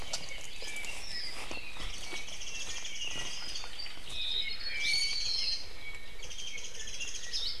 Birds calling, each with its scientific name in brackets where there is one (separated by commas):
Iiwi (Drepanis coccinea), Warbling White-eye (Zosterops japonicus), Hawaii Akepa (Loxops coccineus), Apapane (Himatione sanguinea)